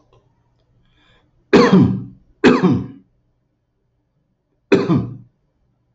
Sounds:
Cough